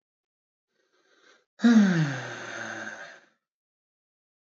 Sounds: Sigh